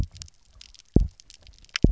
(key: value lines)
label: biophony, double pulse
recorder: SoundTrap 300